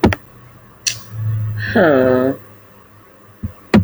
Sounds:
Sigh